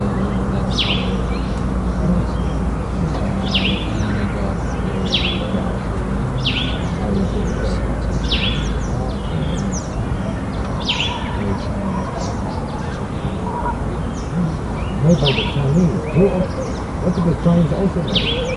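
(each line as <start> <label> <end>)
0.0 A bird chirps repeatedly. 18.6
0.0 A male voice is mumbling repeatedly. 18.6
0.0 Traffic noise. 18.6
6.2 A crow caws in the distance. 13.1
18.2 A pigeon coos in the background. 18.6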